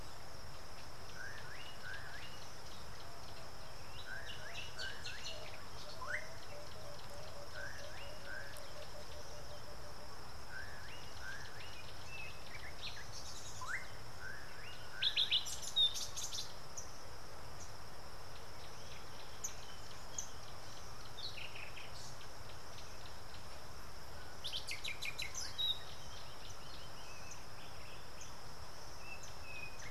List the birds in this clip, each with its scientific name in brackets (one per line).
Emerald-spotted Wood-Dove (Turtur chalcospilos)